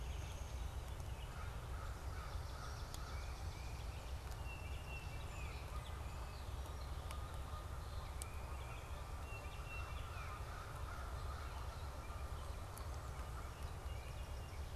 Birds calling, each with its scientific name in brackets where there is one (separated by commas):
Tufted Titmouse (Baeolophus bicolor), Canada Goose (Branta canadensis), Swamp Sparrow (Melospiza georgiana), Gray Catbird (Dumetella carolinensis), American Crow (Corvus brachyrhynchos), Song Sparrow (Melospiza melodia), Downy Woodpecker (Dryobates pubescens), Baltimore Oriole (Icterus galbula)